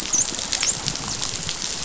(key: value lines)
label: biophony, dolphin
recorder: SoundTrap 500